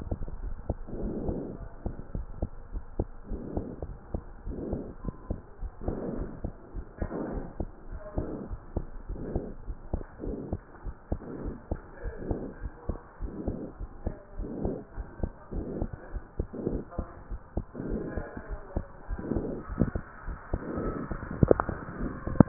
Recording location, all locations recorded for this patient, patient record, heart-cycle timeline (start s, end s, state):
pulmonary valve (PV)
aortic valve (AV)+pulmonary valve (PV)+tricuspid valve (TV)+mitral valve (MV)
#Age: Child
#Sex: Male
#Height: 114.0 cm
#Weight: 46.3 kg
#Pregnancy status: False
#Murmur: Absent
#Murmur locations: nan
#Most audible location: nan
#Systolic murmur timing: nan
#Systolic murmur shape: nan
#Systolic murmur grading: nan
#Systolic murmur pitch: nan
#Systolic murmur quality: nan
#Diastolic murmur timing: nan
#Diastolic murmur shape: nan
#Diastolic murmur grading: nan
#Diastolic murmur pitch: nan
#Diastolic murmur quality: nan
#Outcome: Normal
#Campaign: 2015 screening campaign
0.00	2.54	unannotated
2.54	2.70	diastole
2.70	2.82	S1
2.82	2.97	systole
2.97	3.08	S2
3.08	3.29	diastole
3.29	3.42	S1
3.42	3.55	systole
3.55	3.68	S2
3.68	3.85	diastole
3.85	3.97	S1
3.97	4.12	systole
4.12	4.20	S2
4.20	4.44	diastole
4.44	4.56	S1
4.56	4.70	systole
4.70	4.78	S2
4.78	5.04	diastole
5.04	5.12	S1
5.12	5.26	systole
5.26	5.36	S2
5.36	5.59	diastole
5.59	5.72	S1
5.72	5.84	systole
5.84	5.98	S2
5.98	6.16	diastole
6.16	6.28	S1
6.28	6.42	systole
6.42	6.52	S2
6.52	6.73	diastole
6.73	6.86	S1
6.86	7.00	systole
7.00	7.12	S2
7.12	7.34	diastole
7.34	7.44	S1
7.44	7.58	systole
7.58	7.70	S2
7.70	7.91	diastole
7.91	8.02	S1
8.02	8.16	systole
8.16	8.28	S2
8.28	8.50	diastole
8.50	8.58	S1
8.58	8.74	systole
8.74	8.84	S2
8.84	9.07	diastole
9.07	9.16	S1
9.16	9.33	systole
9.33	9.44	S2
9.44	9.66	diastole
9.66	9.76	systole
9.76	9.89	systole
9.89	10.04	S2
10.04	10.24	diastole
10.24	10.34	S1
10.34	10.51	systole
10.51	10.58	S2
10.58	10.84	diastole
10.84	10.96	S1
10.96	11.10	systole
11.10	11.20	S2
11.20	11.44	diastole
11.44	11.56	S1
11.56	11.69	systole
11.69	11.80	S2
11.80	12.03	diastole
12.03	12.16	S1
12.16	12.28	systole
12.28	12.40	S2
12.40	12.62	diastole
12.62	12.72	S1
12.72	12.86	systole
12.86	12.98	S2
12.98	13.20	diastole
13.20	13.32	S1
13.32	13.46	systole
13.46	13.58	S2
13.58	13.78	diastole
13.78	13.90	S1
13.90	14.03	systole
14.03	14.14	S2
14.14	14.36	diastole
14.36	14.47	S1
14.47	14.62	systole
14.62	14.74	S2
14.74	14.96	diastole
14.96	15.06	S1
15.06	15.20	systole
15.20	15.30	S2
15.30	15.51	diastole
15.51	15.66	S1
15.66	15.79	systole
15.79	15.90	S2
15.90	16.11	diastole
16.11	16.24	S1
16.24	16.38	systole
16.38	16.48	S2
16.48	16.66	diastole
16.66	16.82	S1
16.82	16.96	systole
16.96	17.06	S2
17.06	17.30	diastole
17.30	17.40	S1
17.40	17.56	systole
17.56	17.64	S2
17.64	17.84	diastole
17.84	18.02	S1
18.02	18.15	systole
18.15	18.24	S2
18.24	18.48	diastole
18.48	18.60	S1
18.60	18.74	systole
18.74	18.84	S2
18.84	19.10	diastole
19.10	22.48	unannotated